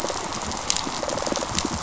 {"label": "biophony, rattle response", "recorder": "SoundTrap 500"}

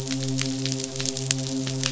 {"label": "biophony, midshipman", "recorder": "SoundTrap 500"}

